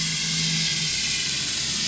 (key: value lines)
label: anthrophony, boat engine
recorder: SoundTrap 500